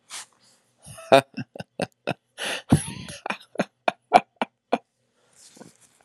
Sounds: Laughter